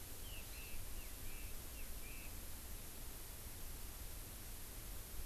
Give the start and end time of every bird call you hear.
[0.00, 2.33] Chinese Hwamei (Garrulax canorus)
[0.43, 0.73] Hawaii Amakihi (Chlorodrepanis virens)

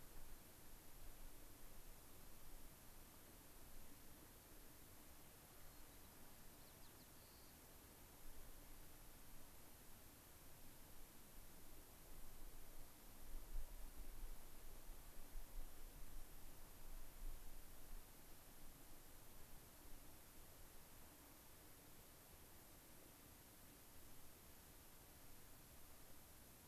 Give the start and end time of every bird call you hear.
[5.34, 7.54] White-crowned Sparrow (Zonotrichia leucophrys)

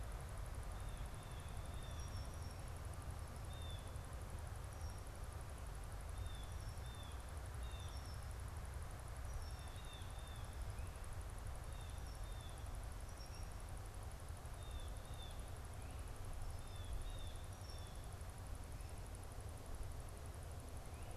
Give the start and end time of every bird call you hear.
[1.60, 15.60] Blue Jay (Cyanocitta cristata)
[4.40, 13.70] Red-winged Blackbird (Agelaius phoeniceus)
[16.50, 18.10] Blue Jay (Cyanocitta cristata)

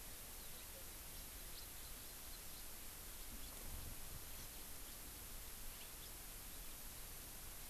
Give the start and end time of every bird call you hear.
[1.49, 1.59] House Finch (Haemorhous mexicanus)

